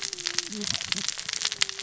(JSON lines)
{"label": "biophony, cascading saw", "recorder": "SoundTrap 600 or HydroMoth"}